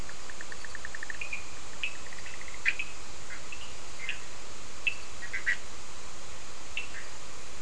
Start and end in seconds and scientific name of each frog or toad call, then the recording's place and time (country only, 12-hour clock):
0.0	5.6	Boana bischoffi
1.8	1.9	Sphaenorhynchus surdus
4.0	5.0	Sphaenorhynchus surdus
6.7	6.9	Sphaenorhynchus surdus
Brazil, 4:15am